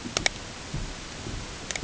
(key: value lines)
label: ambient
recorder: HydroMoth